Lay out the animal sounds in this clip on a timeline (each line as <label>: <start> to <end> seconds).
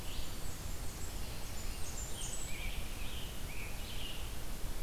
Blackburnian Warbler (Setophaga fusca): 0.0 to 2.8 seconds
Red-eyed Vireo (Vireo olivaceus): 0.0 to 4.8 seconds
Scarlet Tanager (Piranga olivacea): 1.5 to 4.8 seconds